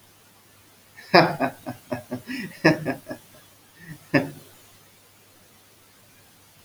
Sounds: Laughter